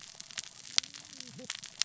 {"label": "biophony, cascading saw", "recorder": "SoundTrap 600 or HydroMoth"}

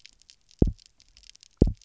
{"label": "biophony, double pulse", "recorder": "SoundTrap 300"}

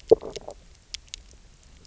{"label": "biophony, stridulation", "recorder": "SoundTrap 300"}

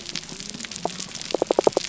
{"label": "biophony", "recorder": "SoundTrap 300"}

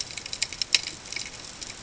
{"label": "ambient", "recorder": "HydroMoth"}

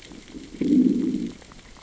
{"label": "biophony, growl", "recorder": "SoundTrap 600 or HydroMoth"}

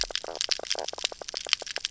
{"label": "biophony, knock croak", "recorder": "SoundTrap 300"}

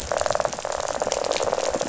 {"label": "biophony, rattle", "recorder": "SoundTrap 500"}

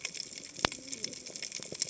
{"label": "biophony, cascading saw", "recorder": "HydroMoth"}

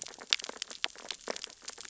{"label": "biophony, sea urchins (Echinidae)", "recorder": "SoundTrap 600 or HydroMoth"}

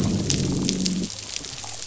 {"label": "biophony, growl", "recorder": "SoundTrap 500"}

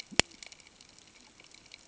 {"label": "ambient", "recorder": "HydroMoth"}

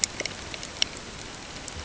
{"label": "ambient", "recorder": "HydroMoth"}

